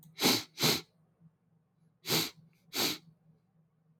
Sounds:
Sniff